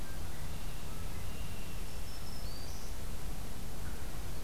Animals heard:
Black-throated Green Warbler (Setophaga virens), Red-winged Blackbird (Agelaius phoeniceus)

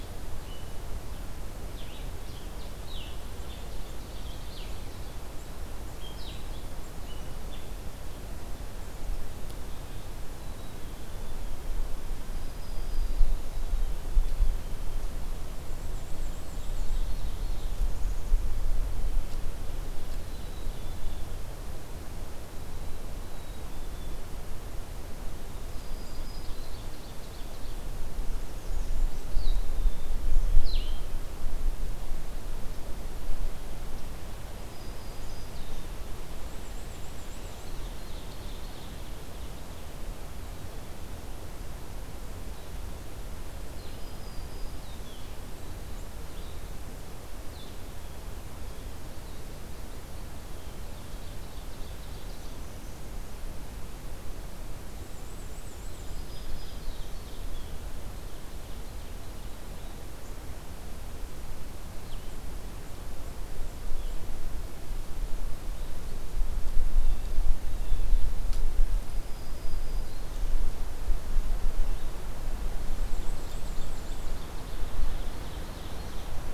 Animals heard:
American Redstart (Setophaga ruticilla), Blue-headed Vireo (Vireo solitarius), Black-and-white Warbler (Mniotilta varia), Ovenbird (Seiurus aurocapilla), Black-throated Green Warbler (Setophaga virens), Blue Jay (Cyanocitta cristata), Black-capped Chickadee (Poecile atricapillus)

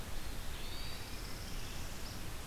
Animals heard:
Hermit Thrush (Catharus guttatus), Northern Parula (Setophaga americana)

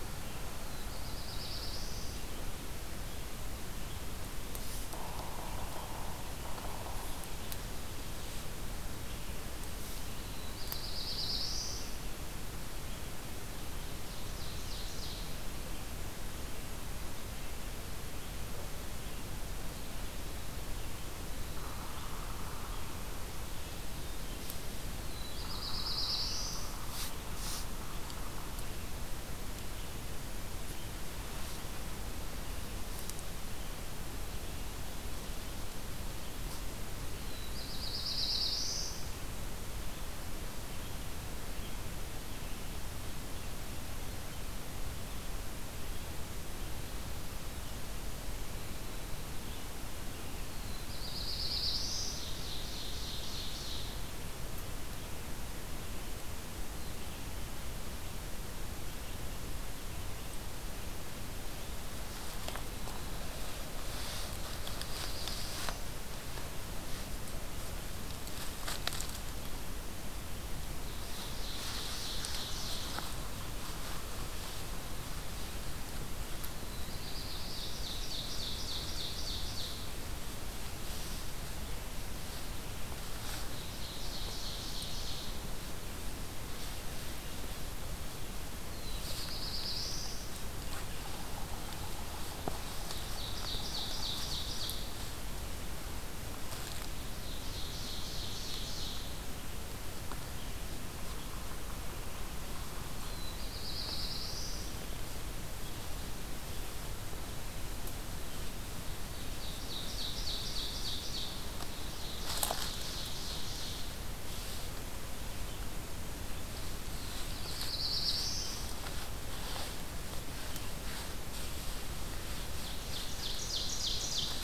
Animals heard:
Black-throated Blue Warbler (Setophaga caerulescens), Yellow-bellied Sapsucker (Sphyrapicus varius), Red-eyed Vireo (Vireo olivaceus), Ovenbird (Seiurus aurocapilla), Hermit Thrush (Catharus guttatus)

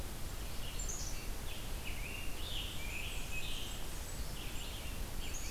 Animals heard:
Blackburnian Warbler (Setophaga fusca), Red-eyed Vireo (Vireo olivaceus), Black-capped Chickadee (Poecile atricapillus), Scarlet Tanager (Piranga olivacea)

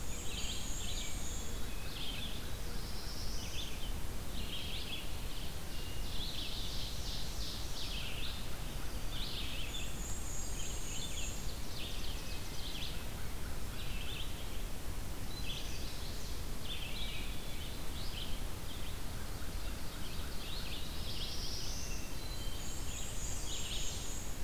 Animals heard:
Red-eyed Vireo (Vireo olivaceus), Black-throated Blue Warbler (Setophaga caerulescens), Ovenbird (Seiurus aurocapilla), American Crow (Corvus brachyrhynchos), Hermit Thrush (Catharus guttatus), Black-and-white Warbler (Mniotilta varia), Chestnut-sided Warbler (Setophaga pensylvanica)

